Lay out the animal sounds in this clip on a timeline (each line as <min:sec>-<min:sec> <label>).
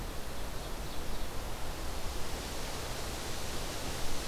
0:00.0-0:01.3 Ovenbird (Seiurus aurocapilla)